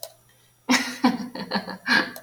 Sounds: Laughter